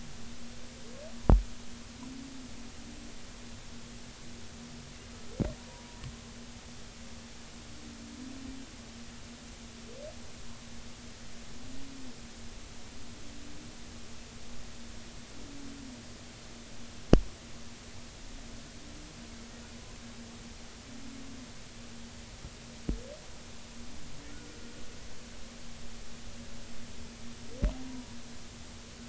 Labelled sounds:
5.6	6.0	humpback whale, 0.90 to 0.99 kHz

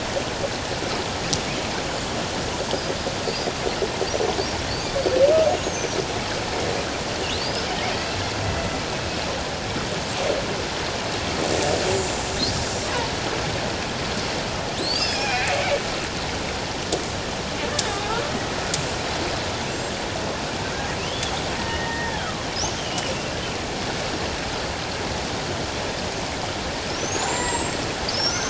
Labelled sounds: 4.7	4.9	killer whale, Bigg's (transient), 4.2 to 4.9 kHz
5.5	5.9	killer whale, Bigg's (transient), 6.0 to 6.8 kHz
7.3	7.6	killer whale, Bigg's (transient), 3.6 to 5.3 kHz
14.8	15.8	killer whale, Bigg's (transient), 0.78 to 5.5 kHz
21.0	23.1	killer whale, Bigg's (transient), 1.7 to 3.5 kHz
27.0	27.8	killer whale, Bigg's (transient), 0.88 to 7.8 kHz

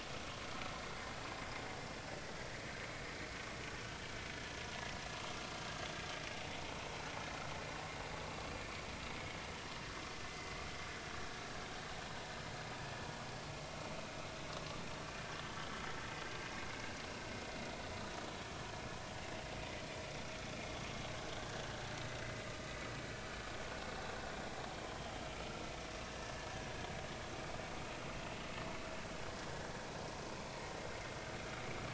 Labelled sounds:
21.4	21.6	vessel noise, 1.5 to 1.7 kHz
25.2	25.6	vessel noise, 1.2 to 2.5 kHz
26.1	26.3	vessel noise, 1.5 to 1.8 kHz

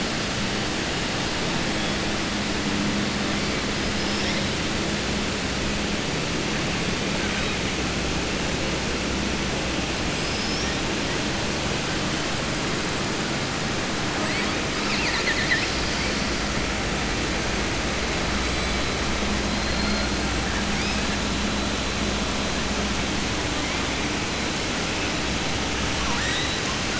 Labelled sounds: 15.4	16.1	killer whale, southern resident, 1.8 to 5.7 kHz

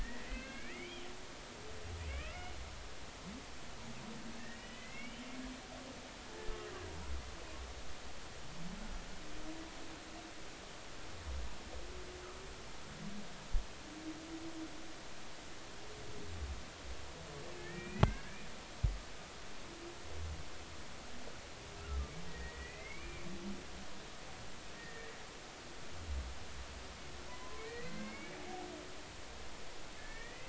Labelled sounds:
0.0	1.1	humpback whale, 1.5 to 3.3 kHz
2.1	2.6	humpback whale, 1.1 to 3.0 kHz
4.4	5.3	humpback whale, 1.7 to 3.2 kHz
6.3	6.6	humpback whale, 1.7 to 1.8 kHz
17.6	18.5	humpback whale, 1.5 to 2.7 kHz
21.8	23.3	humpback whale, 1.2 to 2.6 kHz
24.8	25.2	humpback whale, 1.7 to 2.0 kHz
27.3	28.4	humpback whale, 0.93 to 2.9 kHz
30.0	30.4	humpback whale, 1.7 to 2.7 kHz

